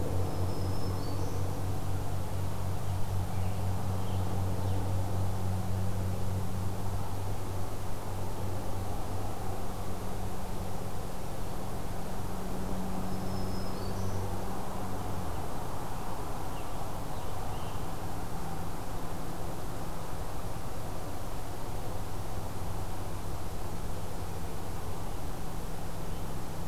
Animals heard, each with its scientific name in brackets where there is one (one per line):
Black-throated Green Warbler (Setophaga virens)
Scarlet Tanager (Piranga olivacea)